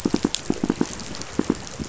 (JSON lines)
{"label": "biophony, pulse", "recorder": "SoundTrap 500"}